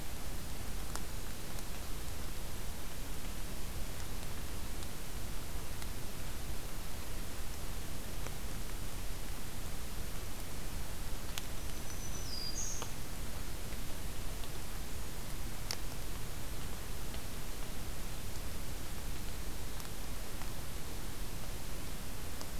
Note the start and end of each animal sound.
11.5s-12.8s: Black-throated Green Warbler (Setophaga virens)

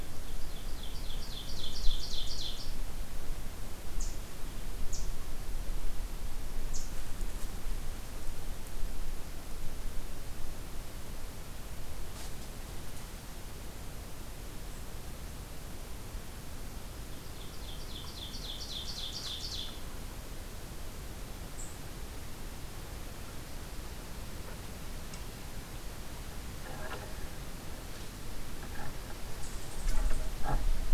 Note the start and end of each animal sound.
0.0s-2.9s: Ovenbird (Seiurus aurocapilla)
3.8s-4.1s: American Redstart (Setophaga ruticilla)
4.9s-5.1s: American Redstart (Setophaga ruticilla)
6.7s-6.8s: American Redstart (Setophaga ruticilla)
17.0s-19.9s: Ovenbird (Seiurus aurocapilla)

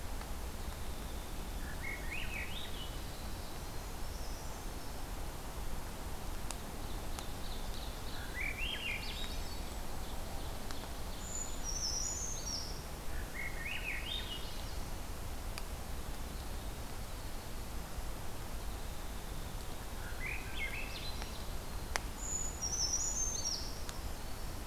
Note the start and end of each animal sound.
0.0s-2.7s: Winter Wren (Troglodytes hiemalis)
1.5s-3.9s: Swainson's Thrush (Catharus ustulatus)
3.7s-5.1s: Brown Creeper (Certhia americana)
6.4s-8.4s: Ovenbird (Seiurus aurocapilla)
8.1s-9.6s: Swainson's Thrush (Catharus ustulatus)
8.7s-10.5s: Golden-crowned Kinglet (Regulus satrapa)
9.5s-11.7s: Ovenbird (Seiurus aurocapilla)
11.2s-12.9s: Brown Creeper (Certhia americana)
13.1s-14.9s: Swainson's Thrush (Catharus ustulatus)
16.0s-22.0s: Winter Wren (Troglodytes hiemalis)
19.9s-21.4s: Swainson's Thrush (Catharus ustulatus)
22.2s-23.8s: Brown Creeper (Certhia americana)
23.5s-24.7s: Black-throated Green Warbler (Setophaga virens)

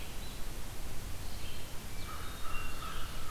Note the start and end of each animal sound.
0.0s-3.3s: Red-eyed Vireo (Vireo olivaceus)
1.6s-3.2s: Hermit Thrush (Catharus guttatus)
1.8s-3.3s: American Crow (Corvus brachyrhynchos)

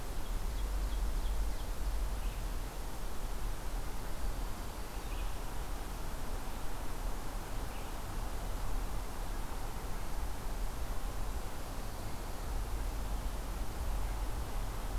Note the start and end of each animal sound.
0.0s-1.9s: Ovenbird (Seiurus aurocapilla)
4.1s-5.4s: Black-throated Green Warbler (Setophaga virens)

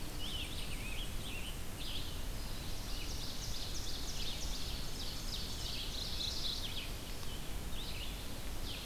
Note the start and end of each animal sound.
0.0s-2.0s: Eastern Chipmunk (Tamias striatus)
0.0s-2.2s: Scarlet Tanager (Piranga olivacea)
0.0s-8.9s: Red-eyed Vireo (Vireo olivaceus)
2.5s-6.1s: Ovenbird (Seiurus aurocapilla)
5.8s-7.0s: Mourning Warbler (Geothlypis philadelphia)

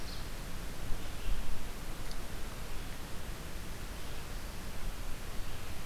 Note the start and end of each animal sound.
0.0s-5.9s: Red-eyed Vireo (Vireo olivaceus)

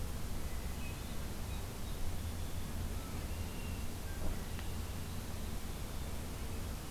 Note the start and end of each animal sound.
0.5s-1.4s: Hermit Thrush (Catharus guttatus)
2.8s-5.1s: Red-winged Blackbird (Agelaius phoeniceus)

